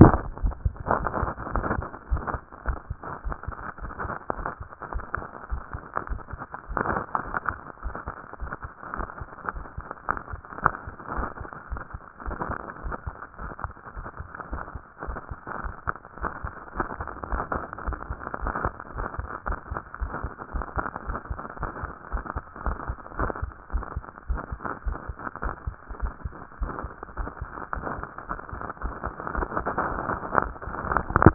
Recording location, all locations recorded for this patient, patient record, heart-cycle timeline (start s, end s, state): tricuspid valve (TV)
aortic valve (AV)+pulmonary valve (PV)+tricuspid valve (TV)+mitral valve (MV)
#Age: Adolescent
#Sex: Male
#Height: 165.0 cm
#Weight: 55.7 kg
#Pregnancy status: False
#Murmur: Absent
#Murmur locations: nan
#Most audible location: nan
#Systolic murmur timing: nan
#Systolic murmur shape: nan
#Systolic murmur grading: nan
#Systolic murmur pitch: nan
#Systolic murmur quality: nan
#Diastolic murmur timing: nan
#Diastolic murmur shape: nan
#Diastolic murmur grading: nan
#Diastolic murmur pitch: nan
#Diastolic murmur quality: nan
#Outcome: Abnormal
#Campaign: 2014 screening campaign
0.00	1.54	unannotated
1.54	1.66	S1
1.66	1.76	systole
1.76	1.86	S2
1.86	2.10	diastole
2.10	2.21	S1
2.21	2.32	systole
2.32	2.40	S2
2.40	2.66	diastole
2.66	2.78	S1
2.78	2.88	systole
2.88	2.98	S2
2.98	3.24	diastole
3.24	3.36	S1
3.36	3.48	systole
3.48	3.56	S2
3.56	3.82	diastole
3.82	3.92	S1
3.92	4.04	systole
4.04	4.16	S2
4.16	4.36	diastole
4.36	4.48	S1
4.48	4.60	systole
4.60	4.70	S2
4.70	4.92	diastole
4.92	5.04	S1
5.04	5.16	systole
5.16	5.26	S2
5.26	5.50	diastole
5.50	5.62	S1
5.62	5.74	systole
5.74	5.84	S2
5.84	6.10	diastole
6.10	6.20	S1
6.20	6.32	systole
6.32	6.40	S2
6.40	6.70	diastole
6.70	31.34	unannotated